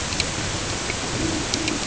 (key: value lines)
label: ambient
recorder: HydroMoth